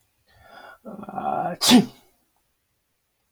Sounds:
Sneeze